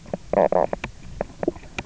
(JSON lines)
{"label": "biophony, knock croak", "recorder": "SoundTrap 300"}